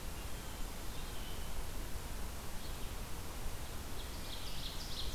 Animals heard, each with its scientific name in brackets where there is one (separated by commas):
Ovenbird (Seiurus aurocapilla), Blue Jay (Cyanocitta cristata), Red-eyed Vireo (Vireo olivaceus)